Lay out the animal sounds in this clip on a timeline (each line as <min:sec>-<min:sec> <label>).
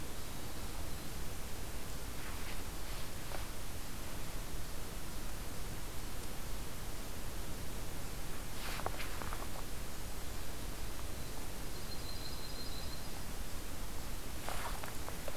0:11.6-0:13.2 Yellow-rumped Warbler (Setophaga coronata)